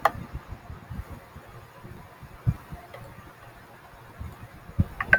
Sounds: Sneeze